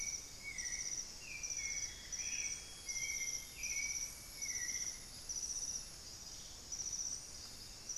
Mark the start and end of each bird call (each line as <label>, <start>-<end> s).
Long-winged Antwren (Myrmotherula longipennis), 0.0-3.6 s
White-necked Thrush (Turdus albicollis), 0.0-5.4 s
Amazonian Grosbeak (Cyanoloxia rothschildii), 1.2-4.0 s
Amazonian Barred-Woodcreeper (Dendrocolaptes certhia), 1.3-2.9 s